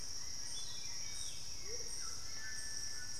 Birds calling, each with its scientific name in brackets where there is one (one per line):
Hauxwell's Thrush (Turdus hauxwelli)
Amazonian Motmot (Momotus momota)
White-throated Toucan (Ramphastos tucanus)